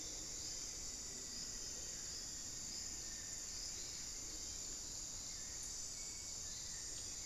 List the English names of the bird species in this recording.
Elegant Woodcreeper, Hauxwell's Thrush